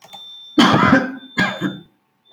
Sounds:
Cough